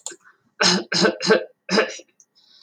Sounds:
Cough